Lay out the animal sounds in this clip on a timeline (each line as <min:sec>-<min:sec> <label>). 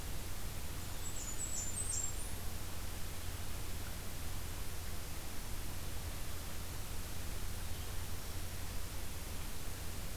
0:00.7-0:02.5 Blackburnian Warbler (Setophaga fusca)
0:07.9-0:08.6 Black-throated Green Warbler (Setophaga virens)